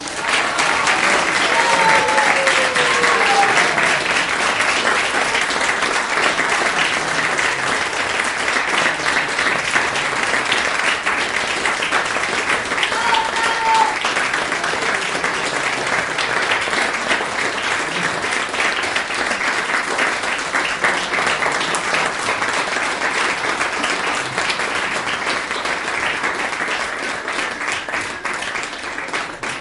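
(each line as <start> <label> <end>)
0.0 People are applauding and cheering in the background. 29.6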